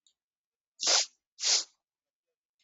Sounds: Sniff